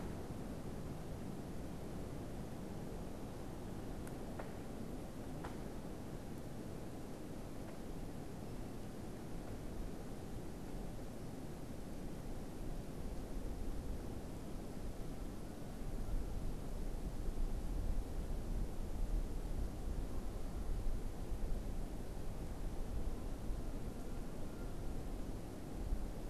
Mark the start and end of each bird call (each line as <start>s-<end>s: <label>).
22.9s-25.0s: Canada Goose (Branta canadensis)